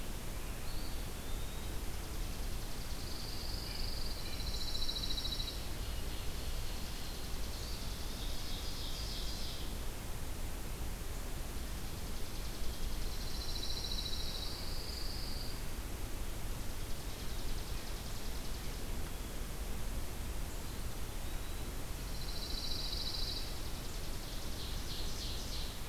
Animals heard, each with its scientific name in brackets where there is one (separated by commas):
Pine Warbler (Setophaga pinus), White-breasted Nuthatch (Sitta carolinensis), Eastern Wood-Pewee (Contopus virens), Chipping Sparrow (Spizella passerina), Ovenbird (Seiurus aurocapilla)